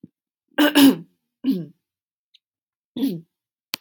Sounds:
Throat clearing